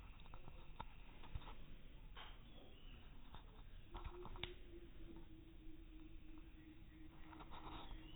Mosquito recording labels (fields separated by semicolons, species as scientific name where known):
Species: no mosquito; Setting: cup